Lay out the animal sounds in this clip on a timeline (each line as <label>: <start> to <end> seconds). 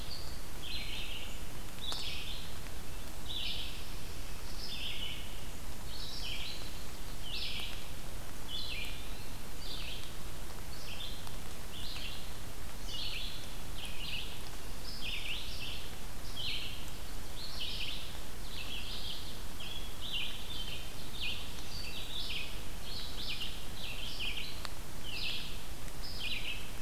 Red-eyed Vireo (Vireo olivaceus): 0.0 to 26.8 seconds